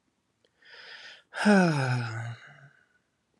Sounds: Sigh